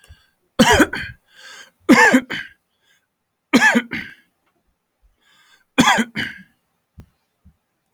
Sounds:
Cough